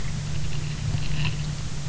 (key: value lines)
label: anthrophony, boat engine
recorder: SoundTrap 300